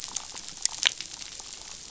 {"label": "biophony, damselfish", "recorder": "SoundTrap 500"}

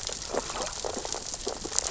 {"label": "biophony, sea urchins (Echinidae)", "recorder": "SoundTrap 600 or HydroMoth"}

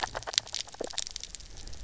{"label": "biophony, grazing", "recorder": "SoundTrap 300"}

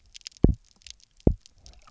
{"label": "biophony, double pulse", "recorder": "SoundTrap 300"}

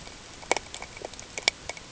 {"label": "ambient", "recorder": "HydroMoth"}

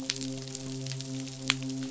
{"label": "biophony, midshipman", "recorder": "SoundTrap 500"}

